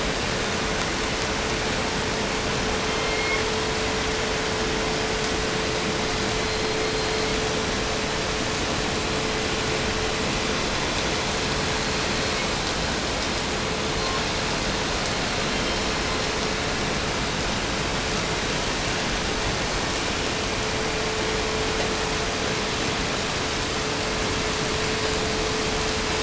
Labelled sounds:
2.8	3.6	killer whale, 1.4 to 4.6 kHz
6.2	7.6	killer whale, 1.5 to 4.5 kHz
12.1	12.6	killer whale, 1.6 to 4.7 kHz
13.8	14.4	killer whale, 0.67 to 4.3 kHz
15.4	16.3	killer whale, 0.78 to 5.7 kHz

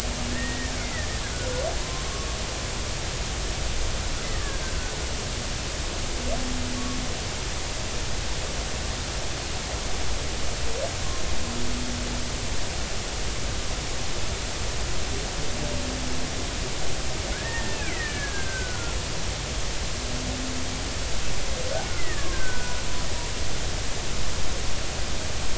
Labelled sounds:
1.8	2.0	killer whale, Bigg's (transient), 0.90 to 1.1 kHz
2.1	2.4	humpback whale, 1.1 to 1.2 kHz
4.3	4.6	killer whale, Bigg's (transient), 1.1 to 1.3 kHz
17.3	19.0	killer whale, Bigg's (transient), 1.3 to 2.7 kHz
22.0	22.8	killer whale, Bigg's (transient), 0.99 to 2.1 kHz

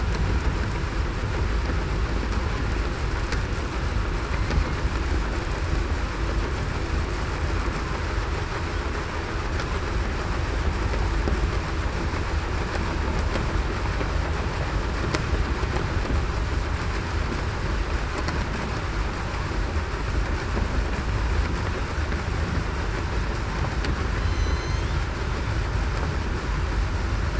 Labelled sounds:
24.2	25.0	killer whale, southern resident, 3.0 to 8.0 kHz

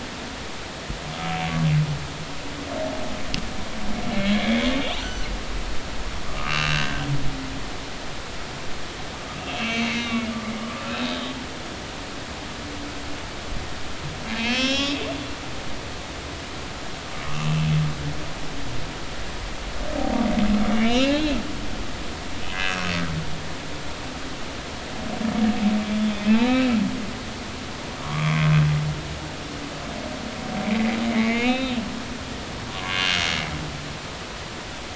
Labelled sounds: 4.2	5.3	humpback whale, 1.4 to 6.2 kHz
6.3	7.1	humpback whale, 1.1 to 3.0 kHz
9.4	10.3	humpback whale, 2.0 to 6.6 kHz
10.9	11.3	humpback whale, 3.5 to 4.0 kHz
14.4	15.0	humpback whale, 2.2 to 7.0 kHz
17.3	17.7	humpback whale, 2.6 to 2.8 kHz
20.7	21.4	humpback whale, 2.1 to 4.2 kHz
22.5	22.9	humpback whale, 1.4 to 2.7 kHz
25.8	26.7	humpback whale, 2.2 to 4.0 kHz
28.0	28.4	humpback whale, 0.96 to 1.2 kHz
31.1	31.8	humpback whale, 1.8 to 4.1 kHz

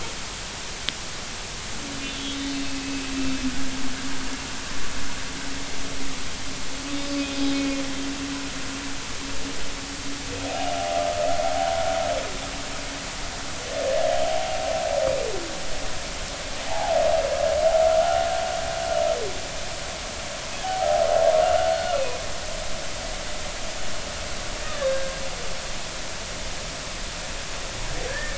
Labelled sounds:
2.1	3.4	humpback whale, 2.5 to 3.6 kHz
7.0	7.8	humpback whale, 2.4 to 5.2 kHz
16.7	17.0	humpback whale, 0.80 to 0.96 kHz
21.7	22.2	humpback whale, 1.3 to 2.6 kHz
24.8	25.1	humpback whale, 1.6 to 3.8 kHz
28.1	28.3	humpback whale, 1.6 to 1.9 kHz

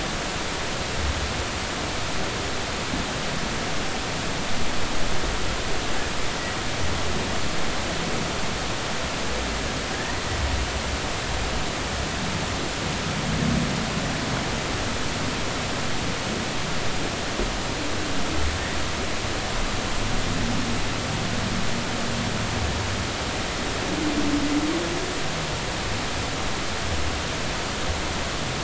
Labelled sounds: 9.9	10.2	humpback whale, 1.6 to 1.9 kHz

